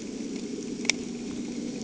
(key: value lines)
label: anthrophony, boat engine
recorder: HydroMoth